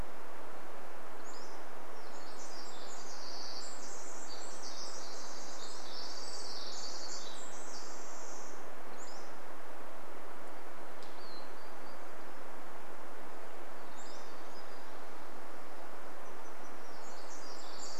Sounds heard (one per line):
Hermit Thrush song
Golden-crowned Kinglet call
Pacific-slope Flycatcher song
Pacific Wren song
Orange-crowned Warbler song
unidentified sound